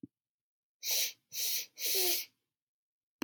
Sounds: Sniff